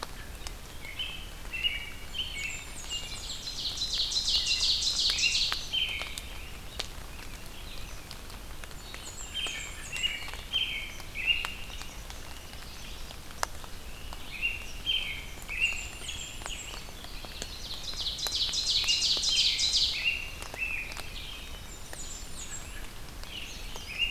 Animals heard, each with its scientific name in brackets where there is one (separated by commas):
Blackburnian Warbler (Setophaga fusca), Ovenbird (Seiurus aurocapilla), Red-eyed Vireo (Vireo olivaceus), American Robin (Turdus migratorius), Black-capped Chickadee (Poecile atricapillus)